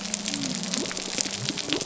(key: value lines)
label: biophony
recorder: SoundTrap 300